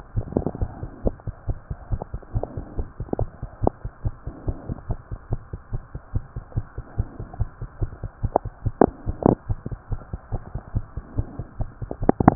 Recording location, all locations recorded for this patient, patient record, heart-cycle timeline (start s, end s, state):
tricuspid valve (TV)
aortic valve (AV)+pulmonary valve (PV)+tricuspid valve (TV)+mitral valve (MV)
#Age: Child
#Sex: Male
#Height: 93.0 cm
#Weight: 19.2 kg
#Pregnancy status: False
#Murmur: Absent
#Murmur locations: nan
#Most audible location: nan
#Systolic murmur timing: nan
#Systolic murmur shape: nan
#Systolic murmur grading: nan
#Systolic murmur pitch: nan
#Systolic murmur quality: nan
#Diastolic murmur timing: nan
#Diastolic murmur shape: nan
#Diastolic murmur grading: nan
#Diastolic murmur pitch: nan
#Diastolic murmur quality: nan
#Outcome: Normal
#Campaign: 2015 screening campaign
0.00	3.83	unannotated
3.83	3.92	S1
3.92	4.02	systole
4.02	4.14	S2
4.14	4.25	diastole
4.25	4.34	S1
4.34	4.46	systole
4.46	4.58	S2
4.58	4.68	diastole
4.68	4.78	S1
4.78	4.88	systole
4.88	4.98	S2
4.98	5.09	diastole
5.09	5.18	S1
5.18	5.30	systole
5.30	5.40	S2
5.40	5.52	diastole
5.52	5.60	S1
5.60	5.70	systole
5.70	5.82	S2
5.82	5.93	diastole
5.93	6.00	S1
6.00	6.12	systole
6.12	6.24	S2
6.24	6.34	diastole
6.34	6.44	S1
6.44	6.55	systole
6.55	6.66	S2
6.66	6.76	diastole
6.76	6.84	S1
6.84	6.96	systole
6.96	7.08	S2
7.08	7.18	diastole
7.18	7.28	S1
7.28	7.38	systole
7.38	7.50	S2
7.50	7.60	diastole
7.60	7.68	S1
7.68	7.80	systole
7.80	7.90	S2
7.90	8.01	diastole
8.01	8.10	S1
8.10	8.22	systole
8.22	8.32	S2
8.32	8.43	diastole
8.43	8.50	S1
8.50	8.63	systole
8.63	8.73	S2
8.73	8.84	diastole
8.84	8.94	S1
8.94	12.35	unannotated